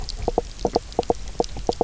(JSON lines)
{"label": "biophony, knock croak", "recorder": "SoundTrap 300"}